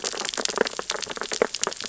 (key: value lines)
label: biophony, sea urchins (Echinidae)
recorder: SoundTrap 600 or HydroMoth